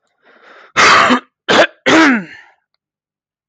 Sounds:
Throat clearing